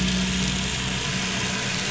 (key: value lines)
label: anthrophony, boat engine
recorder: SoundTrap 500